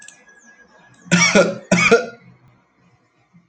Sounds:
Cough